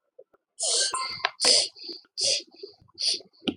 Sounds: Sniff